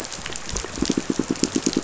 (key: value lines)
label: biophony, pulse
recorder: SoundTrap 500